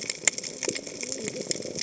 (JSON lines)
{"label": "biophony, cascading saw", "recorder": "HydroMoth"}